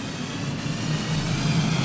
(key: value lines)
label: anthrophony, boat engine
recorder: SoundTrap 500